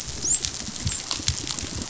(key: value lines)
label: biophony, dolphin
recorder: SoundTrap 500